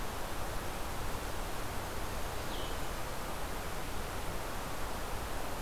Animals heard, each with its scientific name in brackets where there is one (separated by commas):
Blackburnian Warbler (Setophaga fusca), Blue-headed Vireo (Vireo solitarius)